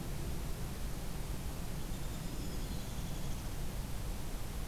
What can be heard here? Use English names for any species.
Downy Woodpecker, Black-throated Green Warbler